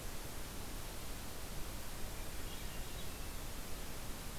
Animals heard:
Swainson's Thrush (Catharus ustulatus)

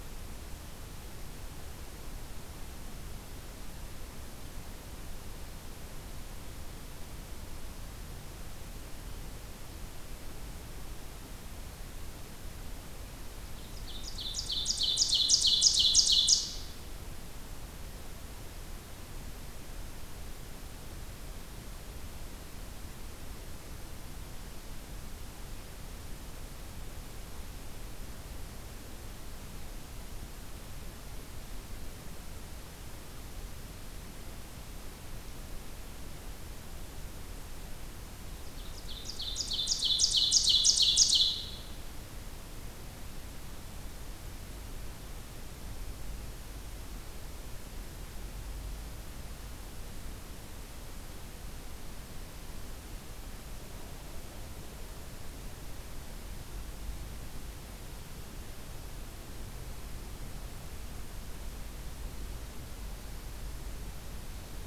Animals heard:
Ovenbird (Seiurus aurocapilla)

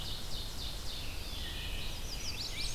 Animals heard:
Rose-breasted Grosbeak (Pheucticus ludovicianus)
Chestnut-sided Warbler (Setophaga pensylvanica)
Ovenbird (Seiurus aurocapilla)
Wood Thrush (Hylocichla mustelina)
Blackburnian Warbler (Setophaga fusca)

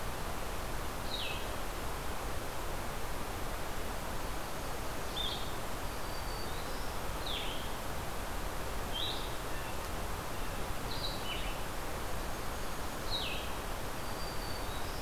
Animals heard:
American Crow (Corvus brachyrhynchos)
Blackburnian Warbler (Setophaga fusca)
Blue-headed Vireo (Vireo solitarius)
Black-throated Green Warbler (Setophaga virens)

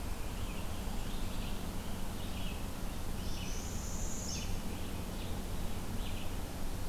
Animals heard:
Northern Parula (Setophaga americana)
Red-eyed Vireo (Vireo olivaceus)

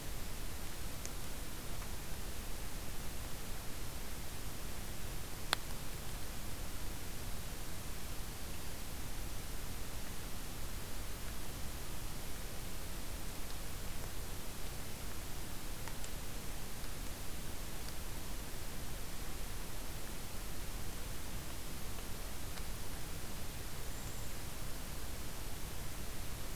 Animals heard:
Cedar Waxwing (Bombycilla cedrorum)

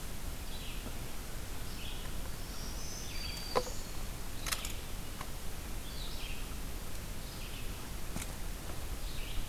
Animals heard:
Red-eyed Vireo (Vireo olivaceus)
Black-throated Green Warbler (Setophaga virens)

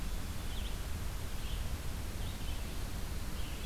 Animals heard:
Red-eyed Vireo (Vireo olivaceus)

